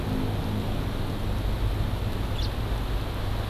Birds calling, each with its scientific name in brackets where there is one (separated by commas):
House Finch (Haemorhous mexicanus)